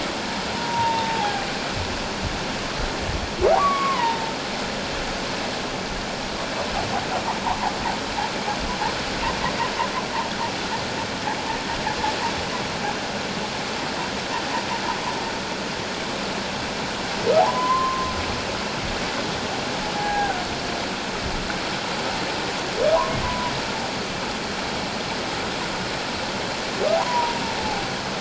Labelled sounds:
0.5	1.5	humpback whale, 0.78 to 1.0 kHz
3.5	4.3	humpback whale, 0.78 to 2.4 kHz
17.4	18.1	humpback whale, 0.78 to 1.1 kHz
19.9	20.4	humpback whale, 0.78 to 1.7 kHz
23.2	23.5	humpback whale, 0.91 to 1.1 kHz
27.0	27.4	humpback whale, 0.84 to 1.1 kHz

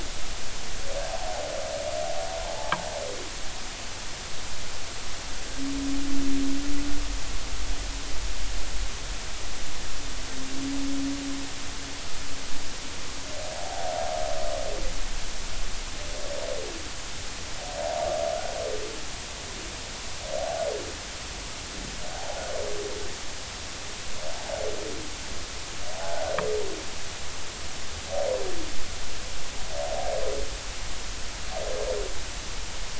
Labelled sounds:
2.6	2.8	humpback whale, 0.83 to 1.3 kHz
13.6	13.9	humpback whale, 0.80 to 0.93 kHz
22.1	22.4	humpback whale, 0.80 to 0.96 kHz
25.9	26.3	humpback whale, 0.80 to 0.90 kHz

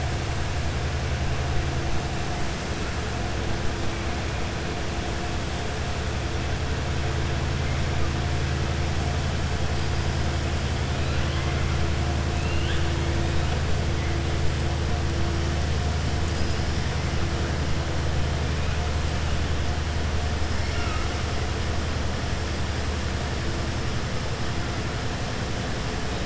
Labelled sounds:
12.3	12.8	killer whale, southern resident, 1.5 to 4.2 kHz

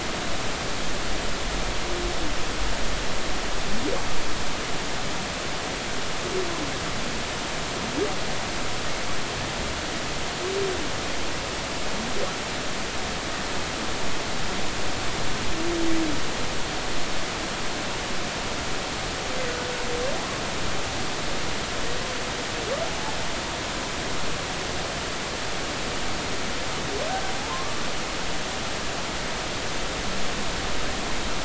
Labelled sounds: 22.9	23.1	humpback whale, 0.80 to 0.99 kHz
27.4	27.8	humpback whale, 0.80 to 1.2 kHz

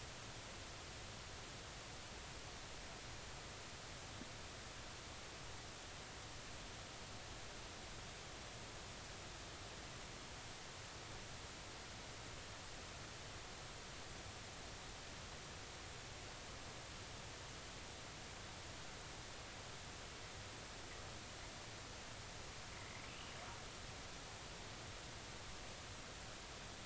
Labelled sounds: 23.1	23.3	humpback whale, 2.5 to 3.1 kHz

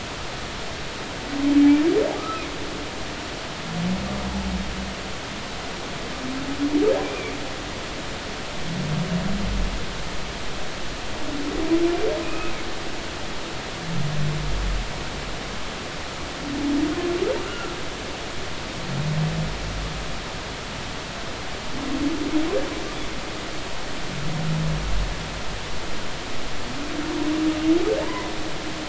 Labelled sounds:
1.5	2.5	humpback whale, 1.2 to 2.4 kHz
12.2	12.5	humpback whale, 2.4 to 2.6 kHz
17.4	17.8	humpback whale, 1.3 to 2.9 kHz

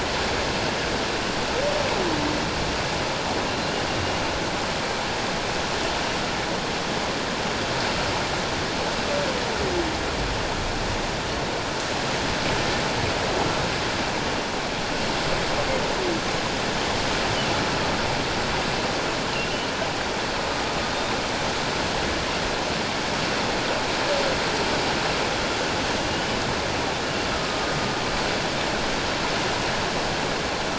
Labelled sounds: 27.3	27.7	humpback whale, 1.2 to 1.3 kHz

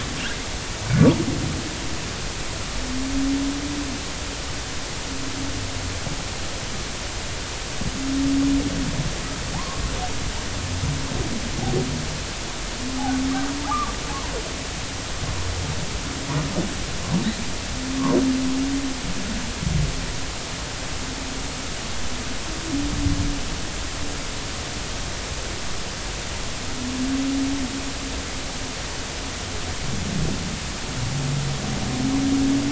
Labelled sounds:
9.5	9.8	humpback whale, 0.80 to 1.2 kHz
13.6	13.9	humpback whale, 1.1 to 1.3 kHz

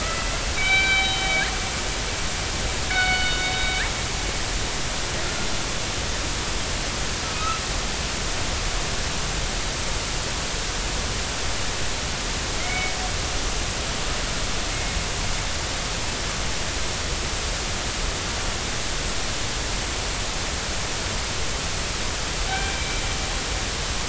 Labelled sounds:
0.0	1.4	killer whale, northern resident, G clan, 1.2 to 4.7 kHz
2.9	3.5	killer whale, northern resident, G clan, 1.4 to 4.6 kHz
7.2	7.6	killer whale, northern resident, G clan, 1.2 to 2.8 kHz
12.6	12.9	killer whale, northern resident, G clan, 2.0 to 2.3 kHz
14.7	15.0	killer whale, northern resident, G clan, 2.1 to 2.2 kHz
22.5	23.0	killer whale, northern resident, G clan, 1.5 to 2.4 kHz

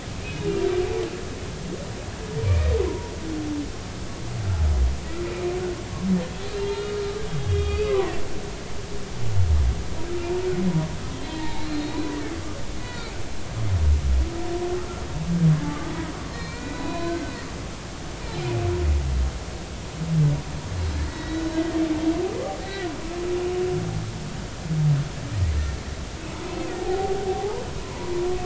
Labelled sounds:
0.2	0.5	humpback whale, 2.4 to 2.6 kHz
2.9	3.1	humpback whale, 0.90 to 1.1 kHz
5.2	5.5	humpback whale, 2.3 to 2.5 kHz
6.6	7.0	humpback whale, 2.8 to 4.3 kHz
7.5	8.2	humpback whale, 0.93 to 4.7 kHz
11.1	12.1	humpback whale, 0.80 to 4.4 kHz
12.8	13.2	humpback whale, 1.3 to 4.5 kHz
15.6	15.9	humpback whale, 1.1 to 1.3 kHz
16.3	17.4	humpback whale, 0.96 to 4.5 kHz
21.0	21.8	humpback whale, 1.8 to 5.3 kHz
22.6	22.9	humpback whale, 1.4 to 2.0 kHz
26.5	28.1	humpback whale, 0.80 to 2.7 kHz

